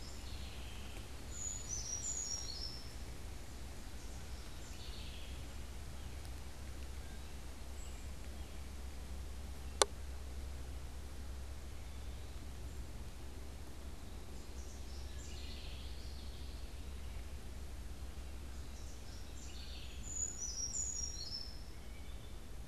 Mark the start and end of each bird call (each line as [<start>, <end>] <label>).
[0.00, 5.82] House Wren (Troglodytes aedon)
[0.92, 3.22] Brown Creeper (Certhia americana)
[14.22, 16.52] House Wren (Troglodytes aedon)
[15.22, 16.92] Common Yellowthroat (Geothlypis trichas)
[18.52, 20.32] House Wren (Troglodytes aedon)
[19.82, 21.82] Brown Creeper (Certhia americana)
[21.52, 22.62] Wood Thrush (Hylocichla mustelina)